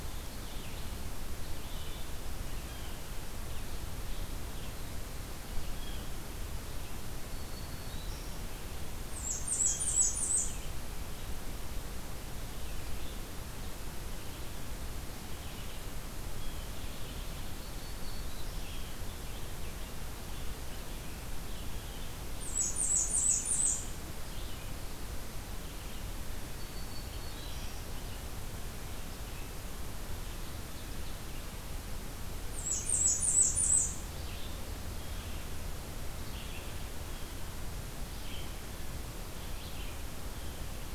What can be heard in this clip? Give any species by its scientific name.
Vireo olivaceus, Setophaga virens, Setophaga fusca, Seiurus aurocapilla